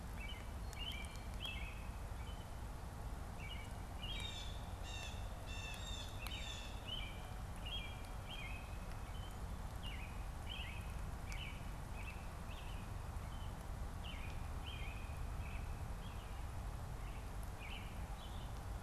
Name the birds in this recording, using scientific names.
Turdus migratorius, Cyanocitta cristata